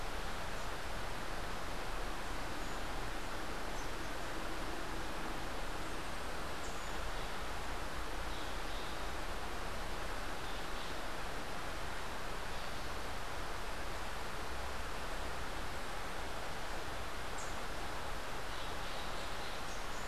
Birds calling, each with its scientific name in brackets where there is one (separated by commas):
Boat-billed Flycatcher (Megarynchus pitangua), Rufous-capped Warbler (Basileuterus rufifrons), Crimson-fronted Parakeet (Psittacara finschi)